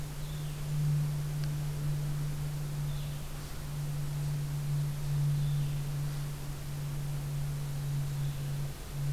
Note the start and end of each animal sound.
[0.00, 5.92] Blue-headed Vireo (Vireo solitarius)

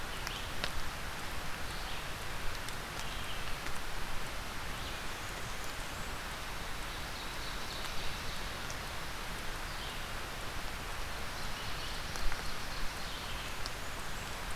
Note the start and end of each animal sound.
[0.00, 14.55] Red-eyed Vireo (Vireo olivaceus)
[4.63, 6.23] Blackburnian Warbler (Setophaga fusca)
[6.35, 8.56] Ovenbird (Seiurus aurocapilla)
[11.24, 13.39] Ovenbird (Seiurus aurocapilla)
[12.76, 14.47] Blackburnian Warbler (Setophaga fusca)

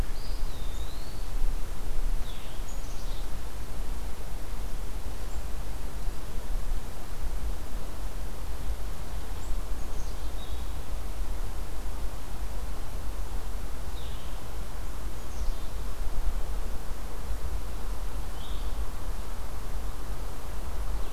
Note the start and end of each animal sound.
[0.00, 1.39] Eastern Wood-Pewee (Contopus virens)
[2.20, 2.69] Blue-headed Vireo (Vireo solitarius)
[2.61, 3.32] Black-capped Chickadee (Poecile atricapillus)
[9.30, 10.78] Black-capped Chickadee (Poecile atricapillus)
[10.30, 10.81] Blue-headed Vireo (Vireo solitarius)
[13.90, 14.49] Blue-headed Vireo (Vireo solitarius)
[15.02, 15.97] Black-capped Chickadee (Poecile atricapillus)
[18.23, 18.78] Blue-headed Vireo (Vireo solitarius)

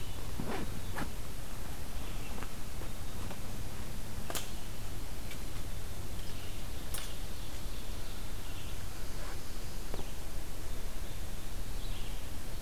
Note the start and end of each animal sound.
[1.91, 12.61] Red-eyed Vireo (Vireo olivaceus)
[6.03, 8.25] Ovenbird (Seiurus aurocapilla)
[8.63, 10.19] Northern Parula (Setophaga americana)

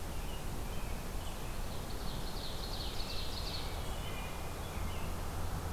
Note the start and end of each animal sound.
[0.00, 1.60] American Robin (Turdus migratorius)
[1.32, 3.68] Ovenbird (Seiurus aurocapilla)
[2.68, 5.19] American Robin (Turdus migratorius)
[3.60, 4.53] Wood Thrush (Hylocichla mustelina)

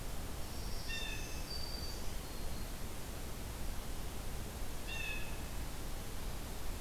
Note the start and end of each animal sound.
[0.12, 2.24] Blue Jay (Cyanocitta cristata)
[0.43, 2.87] Black-throated Green Warbler (Setophaga virens)
[4.64, 5.47] Blue Jay (Cyanocitta cristata)

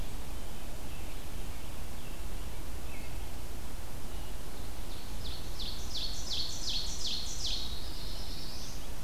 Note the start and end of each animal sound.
[4.72, 7.75] Ovenbird (Seiurus aurocapilla)
[7.50, 9.03] Black-throated Blue Warbler (Setophaga caerulescens)

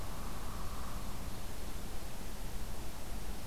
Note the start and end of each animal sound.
[0.13, 1.21] Hairy Woodpecker (Dryobates villosus)

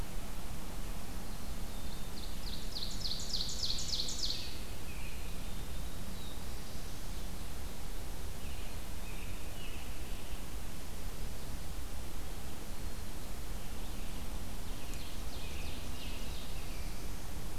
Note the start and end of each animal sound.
[0.96, 2.29] Black-capped Chickadee (Poecile atricapillus)
[1.81, 5.07] Ovenbird (Seiurus aurocapilla)
[4.25, 5.54] American Robin (Turdus migratorius)
[5.14, 7.42] Black-throated Blue Warbler (Setophaga caerulescens)
[8.35, 10.44] American Robin (Turdus migratorius)
[14.38, 16.93] Ovenbird (Seiurus aurocapilla)
[14.65, 17.12] American Robin (Turdus migratorius)

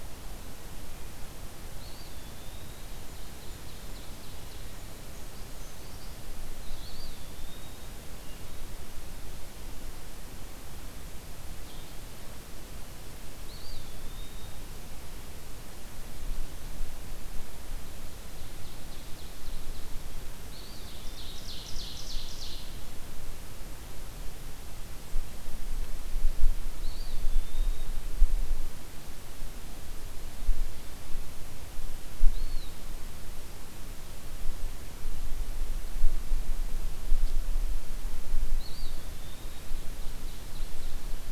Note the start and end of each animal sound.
[1.56, 3.21] Eastern Wood-Pewee (Contopus virens)
[2.93, 4.90] Ovenbird (Seiurus aurocapilla)
[4.89, 6.22] Brown Creeper (Certhia americana)
[6.28, 8.14] Eastern Wood-Pewee (Contopus virens)
[8.09, 8.74] Wood Thrush (Hylocichla mustelina)
[11.52, 12.07] Red-eyed Vireo (Vireo olivaceus)
[13.29, 14.96] Eastern Wood-Pewee (Contopus virens)
[18.18, 20.11] Ovenbird (Seiurus aurocapilla)
[20.41, 21.68] Eastern Wood-Pewee (Contopus virens)
[20.53, 22.80] Ovenbird (Seiurus aurocapilla)
[26.62, 28.16] Eastern Wood-Pewee (Contopus virens)
[32.22, 33.20] Eastern Wood-Pewee (Contopus virens)
[38.27, 40.25] Eastern Wood-Pewee (Contopus virens)
[39.05, 41.31] Ovenbird (Seiurus aurocapilla)

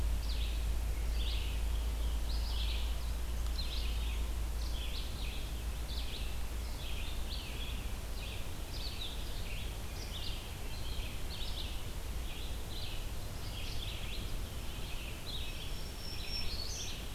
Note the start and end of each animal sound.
[0.00, 17.14] Red-eyed Vireo (Vireo olivaceus)
[15.17, 17.14] Black-throated Green Warbler (Setophaga virens)

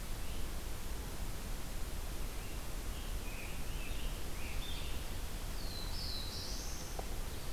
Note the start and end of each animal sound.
[2.25, 5.05] Scarlet Tanager (Piranga olivacea)
[4.88, 7.33] Black-throated Blue Warbler (Setophaga caerulescens)

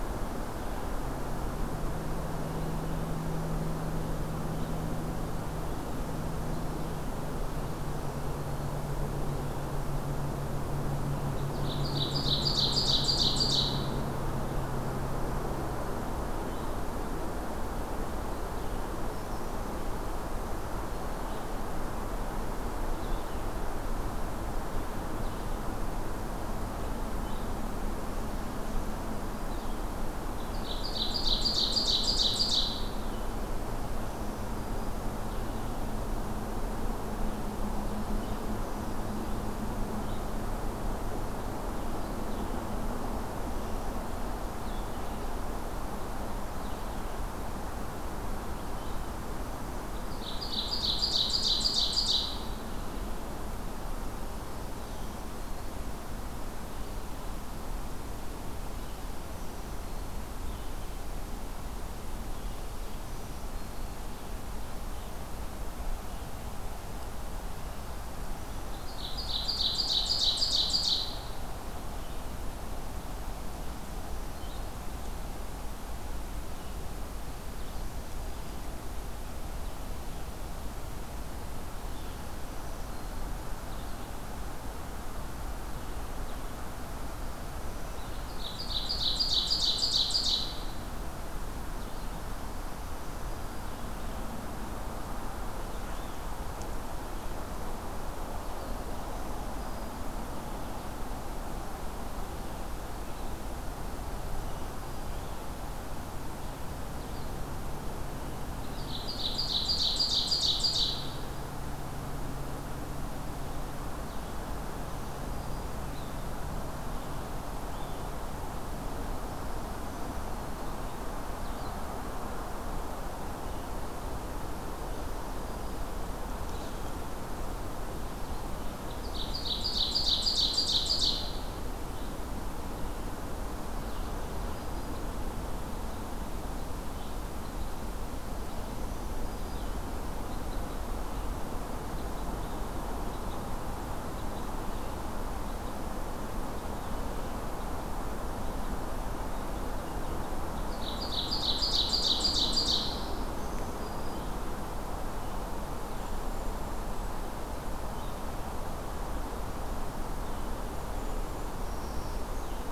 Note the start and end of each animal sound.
[11.20, 14.16] Ovenbird (Seiurus aurocapilla)
[20.69, 29.93] Red-eyed Vireo (Vireo olivaceus)
[30.37, 33.34] Ovenbird (Seiurus aurocapilla)
[34.85, 44.07] Red-eyed Vireo (Vireo olivaceus)
[44.50, 45.06] Red-eyed Vireo (Vireo olivaceus)
[49.86, 52.73] Ovenbird (Seiurus aurocapilla)
[60.18, 60.94] Red-eyed Vireo (Vireo olivaceus)
[62.93, 64.14] Black-throated Green Warbler (Setophaga virens)
[68.68, 71.31] Ovenbird (Seiurus aurocapilla)
[71.85, 74.85] Red-eyed Vireo (Vireo olivaceus)
[77.55, 78.63] Black-throated Green Warbler (Setophaga virens)
[82.31, 83.32] Black-throated Green Warbler (Setophaga virens)
[87.85, 90.53] Ovenbird (Seiurus aurocapilla)
[92.52, 93.77] Black-throated Green Warbler (Setophaga virens)
[98.71, 100.05] Black-throated Green Warbler (Setophaga virens)
[104.24, 105.14] Black-throated Green Warbler (Setophaga virens)
[108.58, 111.47] Ovenbird (Seiurus aurocapilla)
[112.11, 118.12] Red-eyed Vireo (Vireo olivaceus)
[114.78, 115.81] Black-throated Green Warbler (Setophaga virens)
[119.68, 120.81] Black-throated Green Warbler (Setophaga virens)
[121.32, 128.42] Red-eyed Vireo (Vireo olivaceus)
[124.84, 125.90] Black-throated Green Warbler (Setophaga virens)
[128.84, 131.75] Ovenbird (Seiurus aurocapilla)
[134.06, 135.07] Black-throated Green Warbler (Setophaga virens)
[136.63, 160.66] Red-eyed Vireo (Vireo olivaceus)
[138.67, 139.87] Black-throated Green Warbler (Setophaga virens)
[150.61, 153.29] Ovenbird (Seiurus aurocapilla)
[153.23, 154.32] Black-throated Green Warbler (Setophaga virens)
[155.83, 157.29] Golden-crowned Kinglet (Regulus satrapa)
[160.50, 161.60] Golden-crowned Kinglet (Regulus satrapa)
[161.67, 162.72] Black-throated Green Warbler (Setophaga virens)

